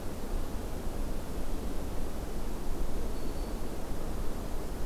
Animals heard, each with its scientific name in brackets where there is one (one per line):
Black-throated Green Warbler (Setophaga virens)